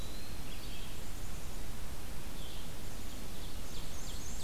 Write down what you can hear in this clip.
Eastern Wood-Pewee, Red-eyed Vireo, Dark-eyed Junco, Ovenbird, Black-and-white Warbler